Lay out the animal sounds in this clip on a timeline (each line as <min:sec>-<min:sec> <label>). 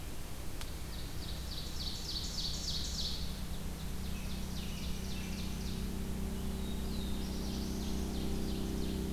0:00.7-0:05.9 Ovenbird (Seiurus aurocapilla)
0:06.3-0:08.5 Black-throated Blue Warbler (Setophaga caerulescens)
0:06.8-0:09.1 Ovenbird (Seiurus aurocapilla)